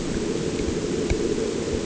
{"label": "anthrophony, boat engine", "recorder": "HydroMoth"}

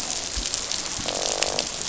{"label": "biophony, croak", "recorder": "SoundTrap 500"}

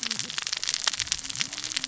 {"label": "biophony, cascading saw", "recorder": "SoundTrap 600 or HydroMoth"}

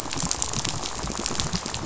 {"label": "biophony, rattle", "recorder": "SoundTrap 500"}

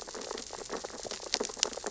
{"label": "biophony, sea urchins (Echinidae)", "recorder": "SoundTrap 600 or HydroMoth"}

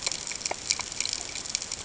{"label": "ambient", "recorder": "HydroMoth"}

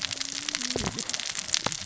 {"label": "biophony, cascading saw", "recorder": "SoundTrap 600 or HydroMoth"}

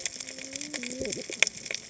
{"label": "biophony, cascading saw", "recorder": "HydroMoth"}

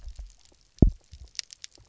{"label": "biophony, double pulse", "recorder": "SoundTrap 300"}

